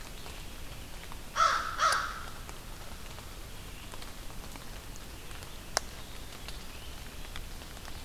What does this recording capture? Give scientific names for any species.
Vireo olivaceus, Corvus brachyrhynchos